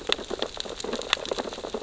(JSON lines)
{"label": "biophony, sea urchins (Echinidae)", "recorder": "SoundTrap 600 or HydroMoth"}